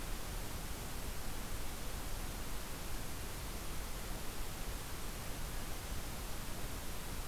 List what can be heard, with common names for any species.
forest ambience